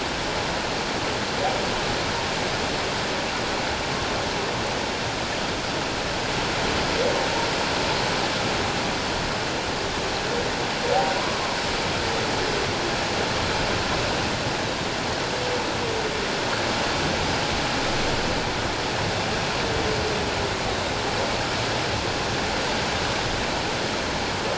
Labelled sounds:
20.7	20.9	Pacific white-sided dolphin, 3.7 to 3.9 kHz

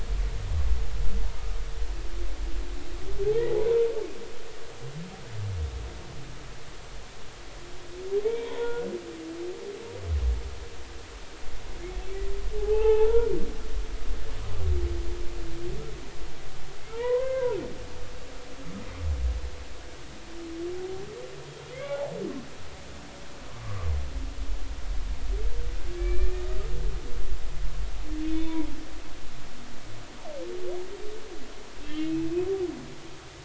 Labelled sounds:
3.3	3.5	humpback whale, 0.80 to 1.0 kHz
8.2	8.9	humpback whale, 0.83 to 3.4 kHz
12.6	13.3	humpback whale, 0.80 to 2.8 kHz
16.9	17.6	humpback whale, 0.86 to 2.2 kHz
21.7	22.2	humpback whale, 0.80 to 2.3 kHz
26.0	26.5	humpback whale, 2.2 to 2.5 kHz
28.2	28.7	humpback whale, 0.86 to 3.6 kHz
31.8	32.3	humpback whale, 2.0 to 2.9 kHz

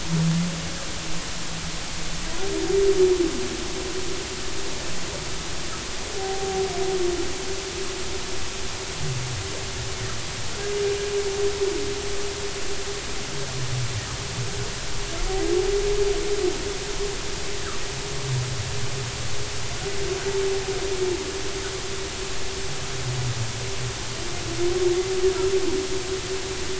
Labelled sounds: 6.2	6.6	humpback whale, 0.80 to 0.83 kHz

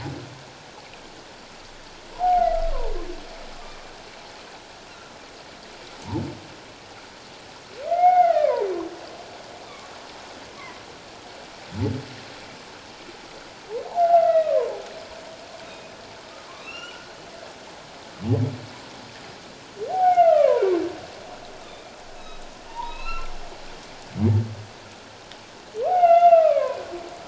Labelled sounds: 2.1	2.6	humpback whale, 0.78 to 2.2 kHz
3.6	3.9	humpback whale, 1.1 to 1.2 kHz
7.9	8.7	humpback whale, 0.78 to 2.5 kHz
13.8	14.8	humpback whale, 0.78 to 2.0 kHz
15.6	15.9	humpback whale, 2.4 to 2.6 kHz
16.6	17.2	humpback whale, 1.2 to 6.0 kHz
19.9	20.7	humpback whale, 0.78 to 2.9 kHz
21.7	22.4	humpback whale, 2.3 to 4.0 kHz
22.7	23.3	humpback whale, 0.81 to 4.2 kHz
25.9	26.8	humpback whale, 0.78 to 3.6 kHz

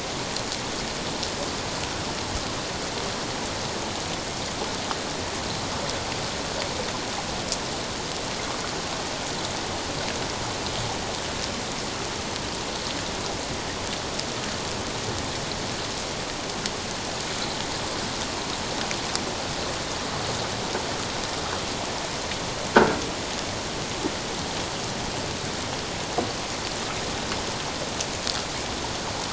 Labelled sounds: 22.7	23.0	croaking sound likely from a nearby submerged object, 1.3 to 1.7 kHz

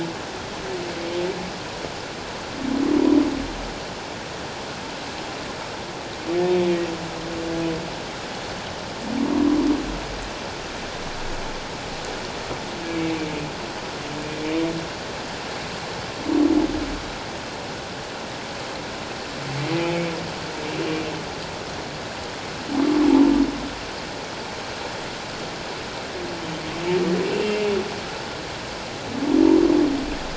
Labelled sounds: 12.9	13.2	humpback whale, 2.2 to 2.4 kHz
27.3	27.6	humpback whale, 2.6 to 2.8 kHz

